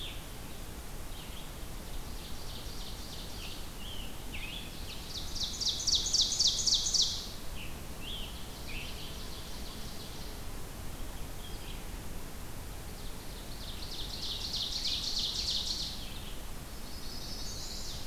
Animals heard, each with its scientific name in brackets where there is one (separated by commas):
Ovenbird (Seiurus aurocapilla), Red-eyed Vireo (Vireo olivaceus), Chestnut-sided Warbler (Setophaga pensylvanica), Scarlet Tanager (Piranga olivacea)